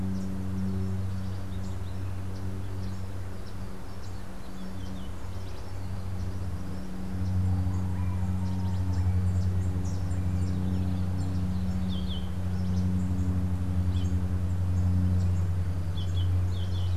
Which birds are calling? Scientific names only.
Euphonia hirundinacea